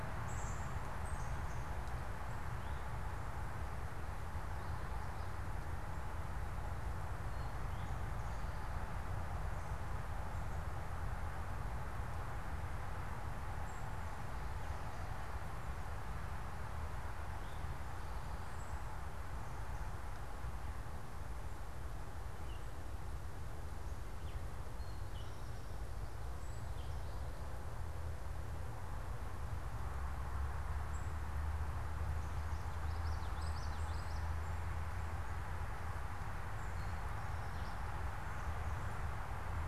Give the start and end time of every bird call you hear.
0.0s-1.7s: unidentified bird
2.5s-2.9s: Eastern Towhee (Pipilo erythrophthalmus)
7.2s-8.2s: Eastern Towhee (Pipilo erythrophthalmus)
13.6s-13.9s: unidentified bird
17.3s-17.8s: Eastern Towhee (Pipilo erythrophthalmus)
22.2s-25.5s: unidentified bird
30.7s-34.7s: unidentified bird
32.3s-34.4s: Common Yellowthroat (Geothlypis trichas)

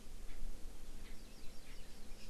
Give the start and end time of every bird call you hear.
0.3s-0.4s: Erckel's Francolin (Pternistis erckelii)
1.0s-1.2s: Erckel's Francolin (Pternistis erckelii)
1.1s-2.3s: Hawaii Amakihi (Chlorodrepanis virens)
1.6s-1.8s: Erckel's Francolin (Pternistis erckelii)

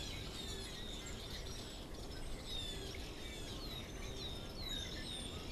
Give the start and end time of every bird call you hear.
0.0s-3.9s: Blue Jay (Cyanocitta cristata)
0.0s-5.5s: unidentified bird

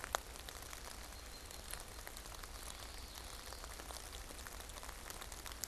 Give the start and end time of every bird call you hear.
0.7s-2.3s: unidentified bird
2.0s-4.0s: Common Yellowthroat (Geothlypis trichas)

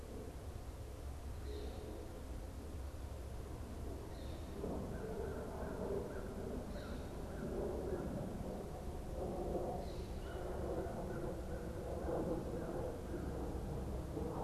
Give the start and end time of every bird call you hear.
1.2s-4.6s: Northern Flicker (Colaptes auratus)
4.6s-8.2s: American Crow (Corvus brachyrhynchos)
10.0s-13.8s: American Crow (Corvus brachyrhynchos)

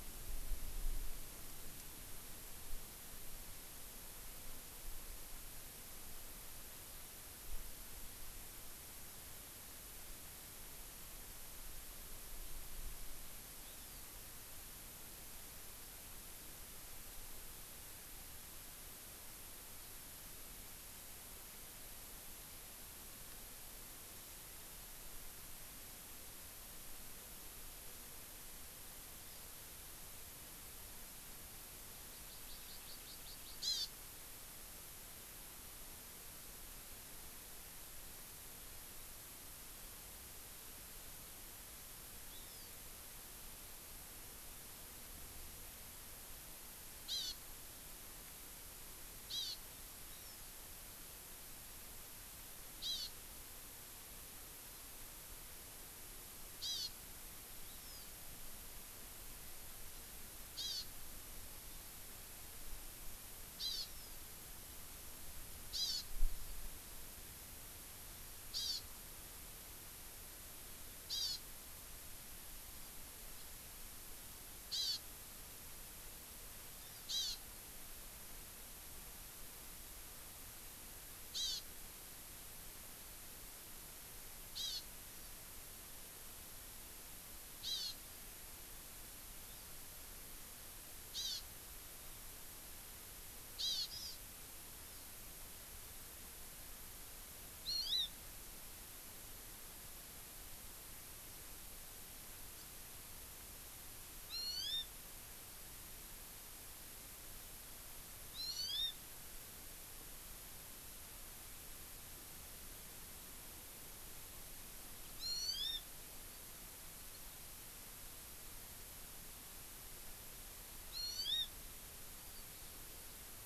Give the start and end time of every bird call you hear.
13.7s-14.1s: Hawaiian Hawk (Buteo solitarius)
32.1s-33.9s: Hawaii Amakihi (Chlorodrepanis virens)
42.3s-42.7s: Hawaiian Hawk (Buteo solitarius)
47.1s-47.4s: Hawaii Amakihi (Chlorodrepanis virens)
49.3s-49.6s: Hawaii Amakihi (Chlorodrepanis virens)
50.1s-50.5s: Hawaiian Hawk (Buteo solitarius)
52.9s-53.1s: Hawaii Amakihi (Chlorodrepanis virens)
56.6s-56.9s: Hawaii Amakihi (Chlorodrepanis virens)
57.6s-58.1s: Hawaiian Hawk (Buteo solitarius)
60.6s-60.8s: Hawaii Amakihi (Chlorodrepanis virens)
63.6s-63.9s: Hawaii Amakihi (Chlorodrepanis virens)
65.7s-66.1s: Hawaii Amakihi (Chlorodrepanis virens)
68.5s-68.8s: Hawaii Amakihi (Chlorodrepanis virens)
71.1s-71.4s: Hawaii Amakihi (Chlorodrepanis virens)
74.7s-75.0s: Hawaii Amakihi (Chlorodrepanis virens)
76.8s-77.4s: Hawaii Amakihi (Chlorodrepanis virens)
81.3s-81.6s: Hawaii Amakihi (Chlorodrepanis virens)
84.6s-84.8s: Hawaii Amakihi (Chlorodrepanis virens)
87.6s-87.9s: Hawaii Amakihi (Chlorodrepanis virens)
89.5s-89.8s: Hawaii Amakihi (Chlorodrepanis virens)
91.1s-91.4s: Hawaii Amakihi (Chlorodrepanis virens)
93.6s-94.2s: Hawaii Amakihi (Chlorodrepanis virens)
94.8s-95.1s: Hawaii Amakihi (Chlorodrepanis virens)
97.7s-98.1s: Hawaii Amakihi (Chlorodrepanis virens)
104.3s-104.9s: Hawaii Amakihi (Chlorodrepanis virens)
108.3s-108.9s: Hawaii Amakihi (Chlorodrepanis virens)
115.2s-115.8s: Hawaii Amakihi (Chlorodrepanis virens)
120.9s-121.5s: Hawaii Amakihi (Chlorodrepanis virens)

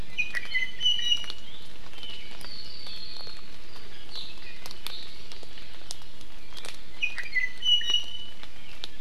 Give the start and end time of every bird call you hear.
0.0s-1.5s: Iiwi (Drepanis coccinea)
1.9s-3.6s: Apapane (Himatione sanguinea)
6.9s-8.3s: Iiwi (Drepanis coccinea)

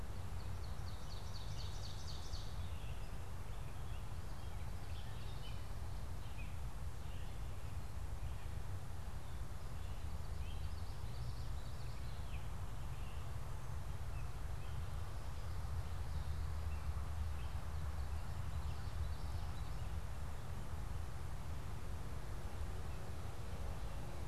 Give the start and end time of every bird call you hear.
0.0s-2.8s: Ovenbird (Seiurus aurocapilla)
1.0s-20.1s: Gray Catbird (Dumetella carolinensis)
10.1s-12.2s: Common Yellowthroat (Geothlypis trichas)
17.8s-19.9s: Common Yellowthroat (Geothlypis trichas)

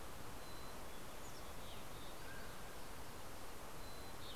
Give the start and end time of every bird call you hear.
0.0s-2.5s: Mountain Chickadee (Poecile gambeli)
1.9s-3.0s: Mountain Quail (Oreortyx pictus)
3.1s-4.4s: Mountain Chickadee (Poecile gambeli)
3.5s-4.4s: Fox Sparrow (Passerella iliaca)

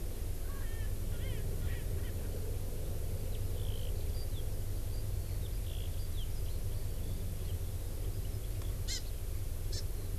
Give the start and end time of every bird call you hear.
0.6s-2.1s: Erckel's Francolin (Pternistis erckelii)
3.3s-9.2s: Eurasian Skylark (Alauda arvensis)
8.8s-9.0s: Hawaii Amakihi (Chlorodrepanis virens)
9.7s-9.8s: Hawaii Amakihi (Chlorodrepanis virens)

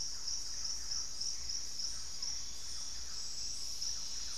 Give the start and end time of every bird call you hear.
0.0s-4.4s: Barred Forest-Falcon (Micrastur ruficollis)
0.0s-4.4s: Thrush-like Wren (Campylorhynchus turdinus)

